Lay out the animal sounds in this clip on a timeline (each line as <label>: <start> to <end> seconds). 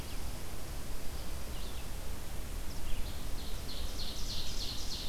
Red-eyed Vireo (Vireo olivaceus): 0.0 to 5.1 seconds
Ovenbird (Seiurus aurocapilla): 2.7 to 5.1 seconds